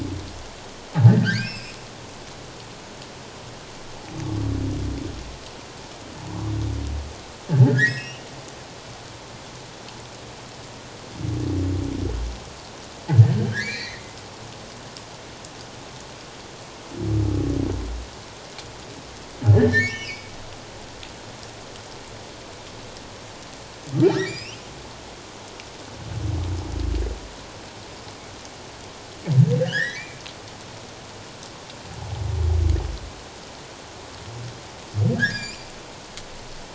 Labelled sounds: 1.1	1.8	humpback whale, 1.4 to 5.4 kHz
7.7	8.3	humpback whale, 1.5 to 3.1 kHz
13.5	14.0	humpback whale, 1.5 to 4.6 kHz
19.5	20.3	humpback whale, 1.7 to 3.2 kHz
24.1	24.6	humpback whale, 1.5 to 5.8 kHz
29.6	30.2	humpback whale, 1.4 to 3.5 kHz
35.2	35.7	humpback whale, 1.5 to 7.4 kHz

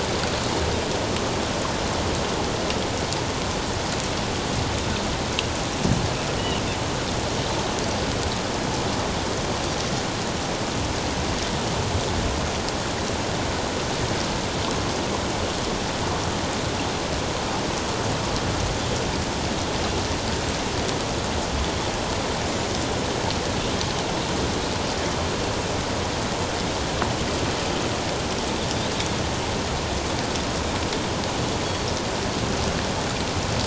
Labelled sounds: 6.4	6.6	Pacific white-sided dolphin, 2.7 to 3.0 kHz

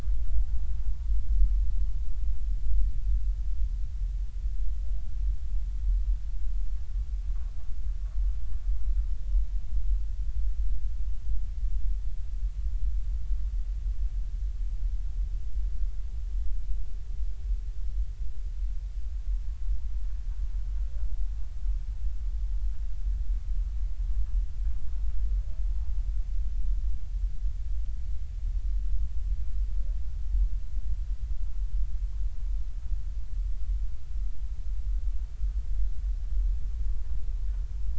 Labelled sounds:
0.7	1.0	humpback whale, 0.83 to 1.1 kHz

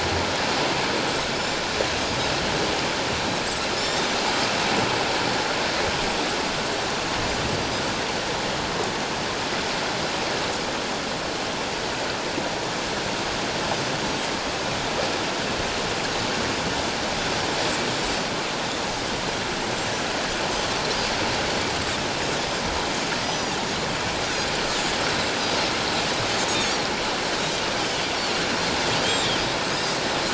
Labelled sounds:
3.7	4.1	Pacific white-sided dolphin, 3.6 to 7.4 kHz
23.2	23.6	Pacific white-sided dolphin, 4.7 to 6.1 kHz
29.0	30.0	Pacific white-sided dolphin, 3.4 to 7.7 kHz

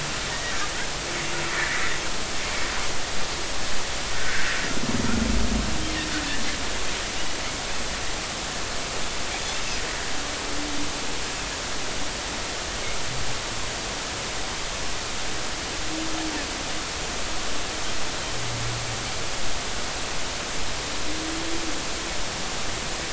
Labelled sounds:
1.6	1.8	Pacific white-sided dolphin, 1.5 to 2.1 kHz
4.1	4.5	Pacific white-sided dolphin, 1.3 to 1.7 kHz

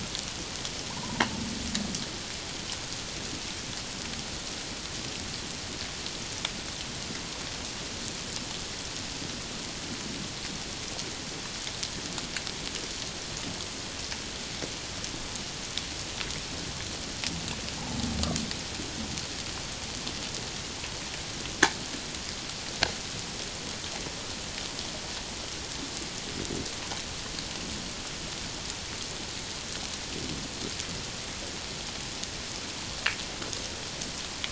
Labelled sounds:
1.0	1.2	humpback whale, 0.84 to 1.1 kHz

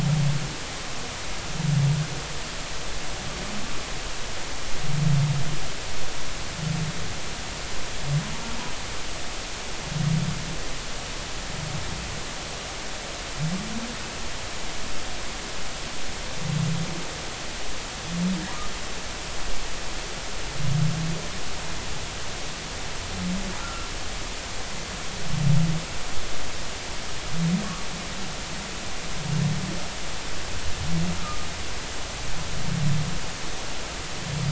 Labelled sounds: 23.6	23.9	humpback whale, 1.2 to 1.5 kHz
31.2	31.5	humpback whale, 1.2 to 1.4 kHz

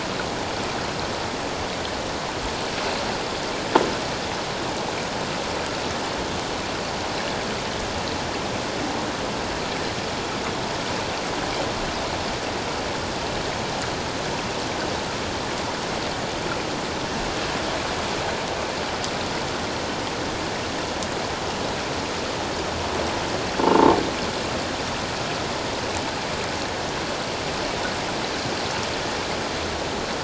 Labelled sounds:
23.6	24.0	croaking sound likely from a nearby submerged object, 0.84 to 0.97 kHz

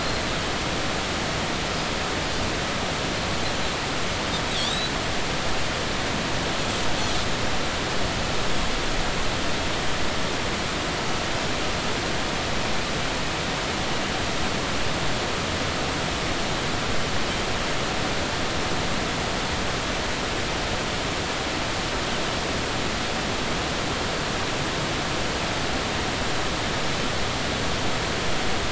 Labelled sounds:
4.6	4.9	Pacific white-sided dolphin, 3.2 to 4.0 kHz

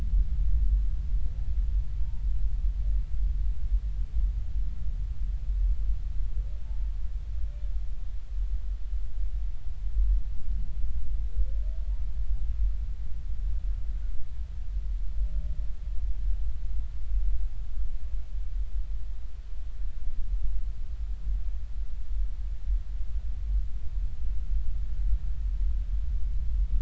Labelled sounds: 1.9	2.2	humpback whale, 0.86 to 0.99 kHz

